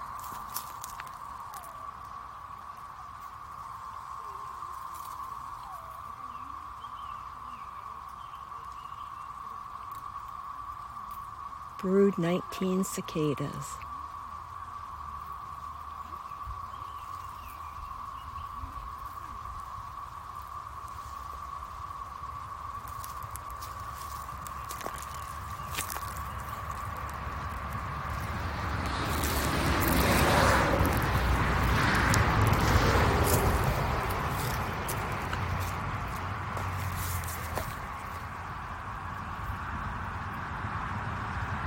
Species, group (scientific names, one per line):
Magicicada tredecim
Cicadidae